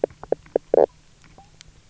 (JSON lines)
{"label": "biophony, knock croak", "recorder": "SoundTrap 300"}